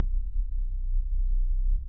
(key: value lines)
label: anthrophony, boat engine
recorder: SoundTrap 300